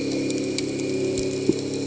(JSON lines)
{"label": "anthrophony, boat engine", "recorder": "HydroMoth"}